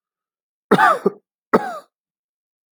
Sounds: Cough